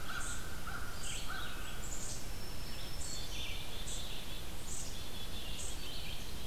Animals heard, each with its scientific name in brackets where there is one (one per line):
Black-capped Chickadee (Poecile atricapillus)
American Crow (Corvus brachyrhynchos)
unknown mammal
Black-throated Green Warbler (Setophaga virens)
Red-eyed Vireo (Vireo olivaceus)